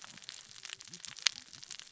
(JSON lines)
{"label": "biophony, cascading saw", "recorder": "SoundTrap 600 or HydroMoth"}